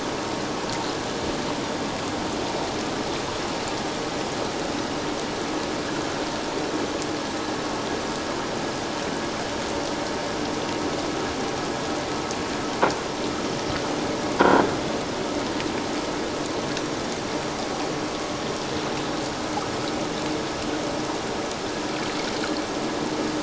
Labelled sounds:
14.4	14.6	croaking sound likely from a nearby submerged object, 1.3 to 1.6 kHz

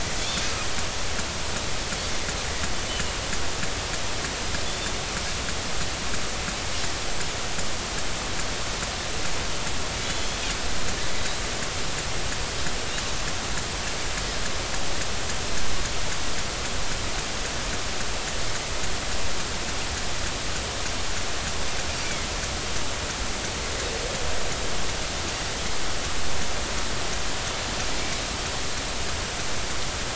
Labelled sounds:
4.6	4.9	Pacific white-sided dolphin, 3.4 to 3.6 kHz
11.1	11.5	Pacific white-sided dolphin, 3.3 to 3.5 kHz
22.0	22.3	Pacific white-sided dolphin, 2.0 to 2.4 kHz

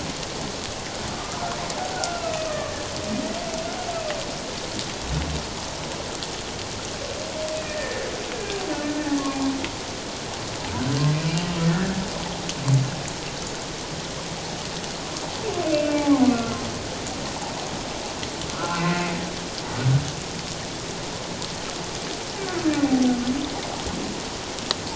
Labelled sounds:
1.1	1.4	humpback whale, 1.1 to 1.3 kHz
1.9	2.8	humpback whale, 1.1 to 2.8 kHz
7.6	8.6	humpback whale, 1.6 to 2.0 kHz
15.7	16.6	humpback whale, 0.78 to 2.8 kHz
18.5	19.1	humpback whale, 1.2 to 2.2 kHz

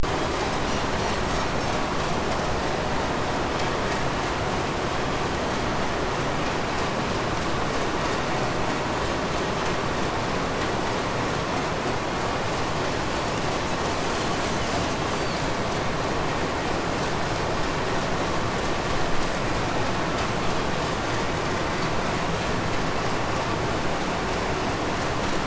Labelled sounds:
0.2	2.0	killer whale, 2.1 to 8.0 kHz
13.2	15.5	Pacific white-sided dolphin, 1.7 to 5.3 kHz

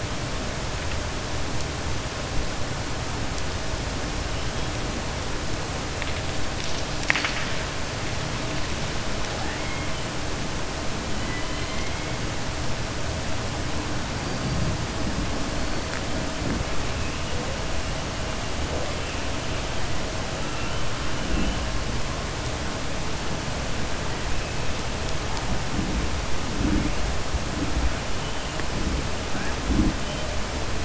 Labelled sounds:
6.9	7.6	killer whale, southern resident, 0.96 to 6.9 kHz
11.2	11.9	killer whale, southern resident, 1.0 to 4.1 kHz

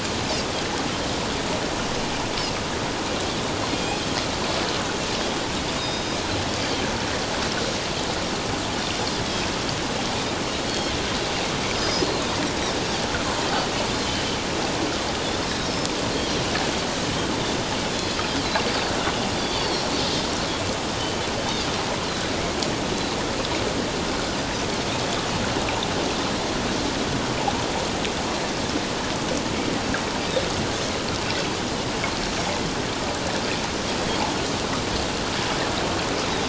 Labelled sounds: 3.7	4.0	Pacific white-sided dolphin, 2.3 to 3.5 kHz
5.8	6.2	Pacific white-sided dolphin, 3.7 to 5.1 kHz
10.7	10.9	Pacific white-sided dolphin, 3.2 to 4.5 kHz
11.8	12.1	Pacific white-sided dolphin, 4.8 to 6.4 kHz
15.6	15.9	Pacific white-sided dolphin, 5.2 to 5.7 kHz
17.9	18.2	Pacific white-sided dolphin, 3.3 to 3.5 kHz
19.4	19.9	Pacific white-sided dolphin, 4.1 to 4.8 kHz
21.0	21.3	Pacific white-sided dolphin, 3.0 to 3.1 kHz

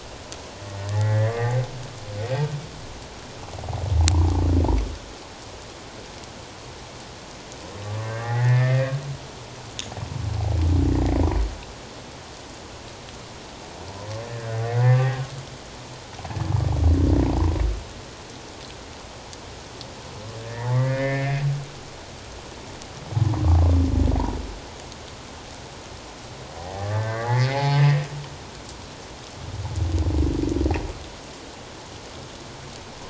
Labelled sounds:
0.9	1.6	humpback whale, 1.1 to 2.2 kHz
7.8	8.9	humpback whale, 0.78 to 2.2 kHz
14.2	15.0	humpback whale, 1.4 to 2.2 kHz
20.4	21.8	humpback whale, 1.2 to 2.4 kHz
26.6	27.8	humpback whale, 0.78 to 4.4 kHz
28.1	28.4	humpback whale, 1.3 to 1.5 kHz

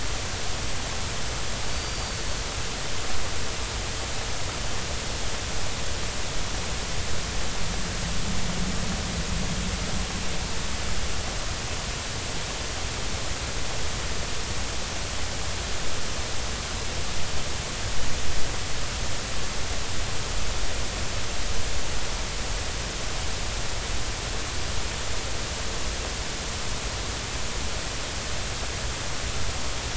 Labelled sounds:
1.7	2.3	Pacific white-sided dolphin, 4.4 to 4.7 kHz

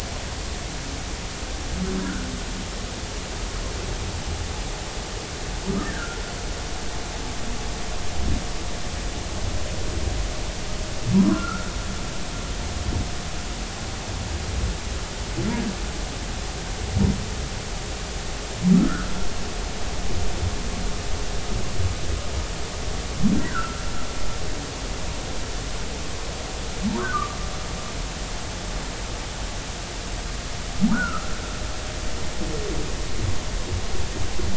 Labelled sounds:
2.0	2.3	humpback whale, 1.3 to 1.7 kHz
5.8	6.2	humpback whale, 1.3 to 1.9 kHz
11.3	11.7	humpback whale, 1.2 to 1.5 kHz
18.7	19.1	humpback whale, 1.2 to 1.8 kHz
23.4	23.8	humpback whale, 1.3 to 2.0 kHz
27.1	27.4	humpback whale, 1.1 to 1.3 kHz
30.9	31.4	humpback whale, 1.2 to 1.6 kHz

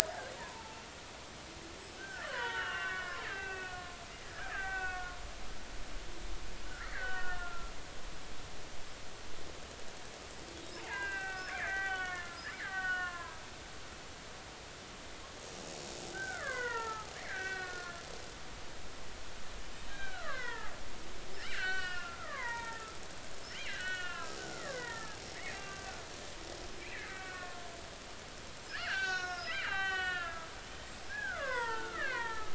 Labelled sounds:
0.0	0.8	killer whale, Bigg's (transient), 0.83 to 1.9 kHz
2.0	5.2	killer whale, Bigg's (transient), 0.86 to 3.6 kHz
6.7	7.7	killer whale, Bigg's (transient), 0.99 to 3.0 kHz
10.7	13.4	killer whale, Bigg's (transient), 0.80 to 3.5 kHz
16.1	18.0	killer whale, Bigg's (transient), 0.83 to 3.0 kHz
19.9	23.0	killer whale, Bigg's (transient), 0.83 to 4.6 kHz
23.5	26.0	killer whale, Bigg's (transient), 0.90 to 4.1 kHz
26.8	27.6	killer whale, Bigg's (transient), 1.0 to 2.7 kHz
28.7	30.5	killer whale, Bigg's (transient), 0.80 to 6.9 kHz
31.1	32.5	killer whale, Bigg's (transient), 0.83 to 3.7 kHz

